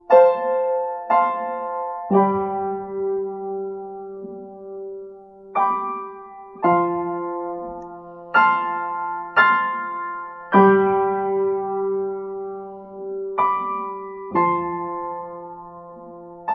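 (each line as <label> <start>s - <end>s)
A piano plays music slowly. 0.0s - 16.5s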